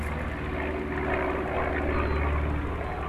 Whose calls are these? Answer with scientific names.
Poecile atricapillus